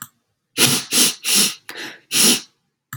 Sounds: Sniff